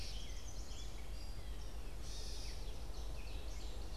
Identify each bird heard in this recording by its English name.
Chestnut-sided Warbler, Gray Catbird, Ovenbird